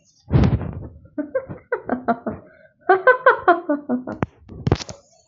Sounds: Laughter